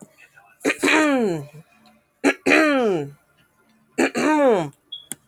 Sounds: Throat clearing